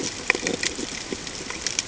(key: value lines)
label: ambient
recorder: HydroMoth